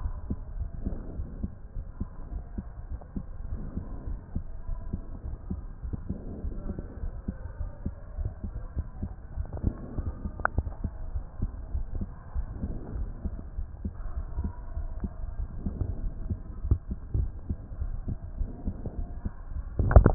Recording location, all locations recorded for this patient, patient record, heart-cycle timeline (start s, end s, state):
aortic valve (AV)
aortic valve (AV)+pulmonary valve (PV)
#Age: nan
#Sex: Female
#Height: nan
#Weight: nan
#Pregnancy status: True
#Murmur: Absent
#Murmur locations: nan
#Most audible location: nan
#Systolic murmur timing: nan
#Systolic murmur shape: nan
#Systolic murmur grading: nan
#Systolic murmur pitch: nan
#Systolic murmur quality: nan
#Diastolic murmur timing: nan
#Diastolic murmur shape: nan
#Diastolic murmur grading: nan
#Diastolic murmur pitch: nan
#Diastolic murmur quality: nan
#Outcome: Normal
#Campaign: 2015 screening campaign
0.00	0.09	S1
0.09	0.29	systole
0.29	0.35	S2
0.35	0.58	diastole
0.58	0.68	S1
0.68	0.84	systole
0.84	0.90	S2
0.90	1.18	diastole
1.18	1.23	S1
1.23	1.43	systole
1.43	1.46	S2
1.46	1.76	diastole
1.76	1.82	S1
1.82	2.00	systole
2.00	2.04	S2
2.04	2.34	diastole
2.34	2.40	S1
2.40	2.58	systole
2.58	2.61	S2
2.61	2.92	diastole
2.92	2.96	S1
2.96	3.15	systole
3.15	3.19	S2
3.19	3.51	diastole
3.51	3.57	S1
3.57	3.76	systole
3.76	3.80	S2
3.80	4.05	diastole
4.05	4.16	S1
4.16	4.35	systole
4.35	4.39	S2
4.39	4.68	diastole
4.68	4.74	S1
4.74	4.92	systole
4.92	4.95	S2
4.95	5.25	diastole
5.25	5.31	S1
5.31	5.50	systole
5.50	5.53	S2
5.53	5.84	diastole
5.84	5.89	S1
5.89	6.09	systole
6.09	6.13	S2
6.13	6.44	diastole
6.44	6.50	S1
6.50	6.69	systole
6.69	6.72	S2
6.72	7.02	diastole
7.02	7.09	S1
7.09	7.28	systole
7.28	7.31	S2
7.31	7.60	diastole
7.60	7.66	S1
7.66	7.85	systole
7.85	7.89	S2
7.89	8.18	diastole
8.18	8.24	S1
8.24	8.44	systole
8.44	8.48	S2
8.48	8.76	diastole
8.76	8.82	S1
8.82	9.02	systole
9.02	9.07	S2
9.07	9.36	diastole
9.36	9.44	S1